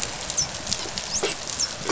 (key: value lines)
label: biophony, dolphin
recorder: SoundTrap 500